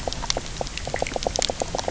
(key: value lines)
label: biophony, knock croak
recorder: SoundTrap 300